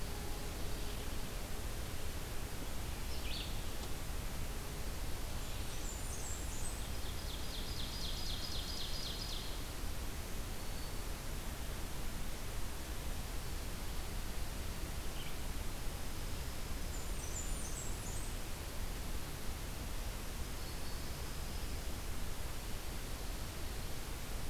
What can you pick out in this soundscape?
Red-eyed Vireo, Blackburnian Warbler, Ovenbird, Dark-eyed Junco